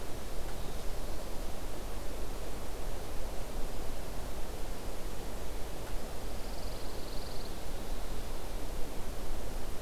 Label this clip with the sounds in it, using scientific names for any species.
Setophaga pinus